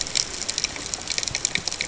{"label": "ambient", "recorder": "HydroMoth"}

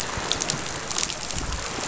{"label": "biophony", "recorder": "SoundTrap 500"}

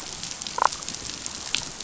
{"label": "biophony, damselfish", "recorder": "SoundTrap 500"}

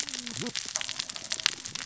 {"label": "biophony, cascading saw", "recorder": "SoundTrap 600 or HydroMoth"}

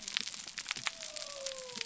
{"label": "biophony", "recorder": "SoundTrap 300"}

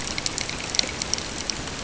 {"label": "ambient", "recorder": "HydroMoth"}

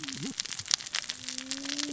{"label": "biophony, cascading saw", "recorder": "SoundTrap 600 or HydroMoth"}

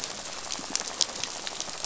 {"label": "biophony, rattle", "recorder": "SoundTrap 500"}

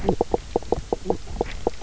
{"label": "biophony, knock croak", "recorder": "SoundTrap 300"}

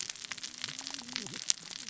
{"label": "biophony, cascading saw", "recorder": "SoundTrap 600 or HydroMoth"}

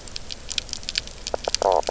{"label": "biophony, knock croak", "recorder": "SoundTrap 300"}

